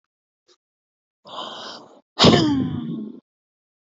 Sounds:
Sigh